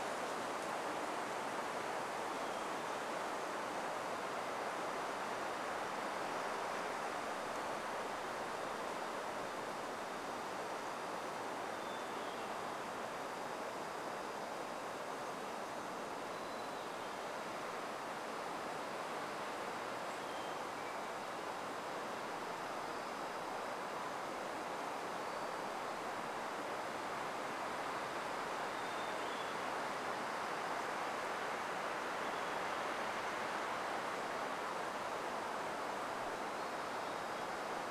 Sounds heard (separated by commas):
insect buzz, Hermit Thrush song, warbler song